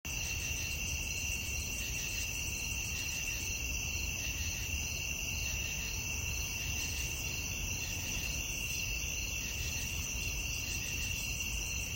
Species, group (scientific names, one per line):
Microcentrum rhombifolium
Orthoptera